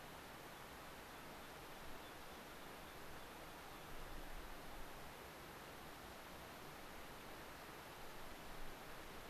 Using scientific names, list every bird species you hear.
Anthus rubescens